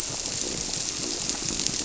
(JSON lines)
{"label": "biophony", "recorder": "SoundTrap 300"}